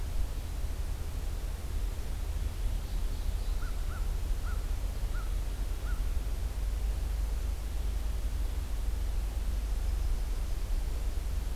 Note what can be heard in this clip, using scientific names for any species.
Corvus brachyrhynchos